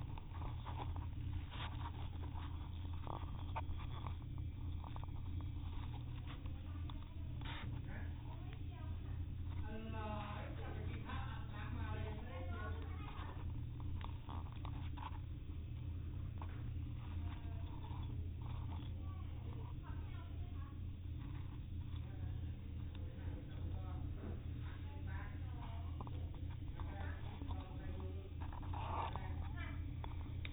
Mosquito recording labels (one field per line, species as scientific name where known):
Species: no mosquito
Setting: cup